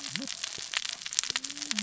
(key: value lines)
label: biophony, cascading saw
recorder: SoundTrap 600 or HydroMoth